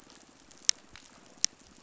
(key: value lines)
label: biophony
recorder: SoundTrap 500